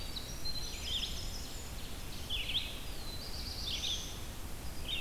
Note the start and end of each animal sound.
0.0s-1.9s: Winter Wren (Troglodytes hiemalis)
0.0s-5.0s: Red-eyed Vireo (Vireo olivaceus)
0.6s-2.4s: Ovenbird (Seiurus aurocapilla)
2.6s-4.2s: Black-throated Blue Warbler (Setophaga caerulescens)

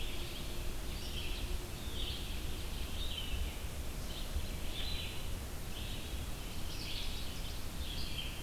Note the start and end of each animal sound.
0.0s-8.4s: Red-eyed Vireo (Vireo olivaceus)
6.3s-7.7s: Ovenbird (Seiurus aurocapilla)

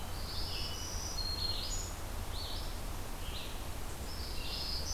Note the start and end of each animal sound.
0.0s-4.9s: Red-eyed Vireo (Vireo olivaceus)
0.1s-2.0s: Black-throated Green Warbler (Setophaga virens)
4.3s-4.9s: Black-throated Green Warbler (Setophaga virens)

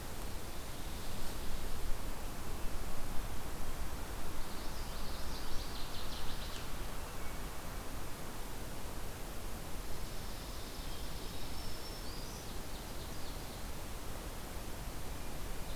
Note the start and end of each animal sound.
4.2s-5.6s: Common Yellowthroat (Geothlypis trichas)
5.4s-6.7s: Northern Waterthrush (Parkesia noveboracensis)
6.8s-7.6s: Hermit Thrush (Catharus guttatus)
11.2s-12.5s: Black-throated Green Warbler (Setophaga virens)
12.0s-13.7s: Ovenbird (Seiurus aurocapilla)

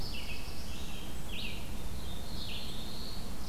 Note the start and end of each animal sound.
0.0s-3.5s: Red-eyed Vireo (Vireo olivaceus)
0.0s-0.9s: Black-throated Blue Warbler (Setophaga caerulescens)
1.9s-3.3s: Black-throated Blue Warbler (Setophaga caerulescens)

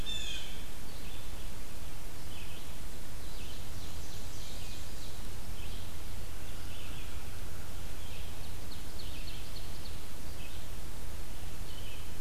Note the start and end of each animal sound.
0.0s-0.6s: Blue Jay (Cyanocitta cristata)
0.0s-12.2s: Red-eyed Vireo (Vireo olivaceus)
2.9s-5.2s: Ovenbird (Seiurus aurocapilla)
3.3s-5.0s: Blackburnian Warbler (Setophaga fusca)
8.0s-10.2s: Ovenbird (Seiurus aurocapilla)

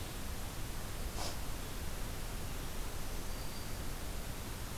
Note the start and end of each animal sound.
3.2s-4.0s: Black-throated Green Warbler (Setophaga virens)

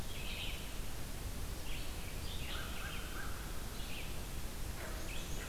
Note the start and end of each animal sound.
0.0s-0.6s: Eastern Wood-Pewee (Contopus virens)
0.0s-5.5s: Red-eyed Vireo (Vireo olivaceus)
2.1s-3.5s: American Crow (Corvus brachyrhynchos)
4.7s-5.5s: Black-and-white Warbler (Mniotilta varia)

